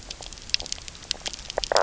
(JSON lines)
{"label": "biophony, knock croak", "recorder": "SoundTrap 300"}